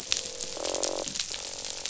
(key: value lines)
label: biophony, croak
recorder: SoundTrap 500